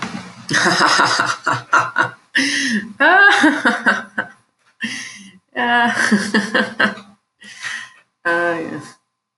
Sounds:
Laughter